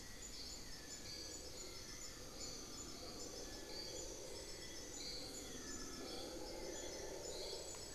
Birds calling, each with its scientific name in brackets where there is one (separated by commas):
Amazonian Pygmy-Owl (Glaucidium hardyi)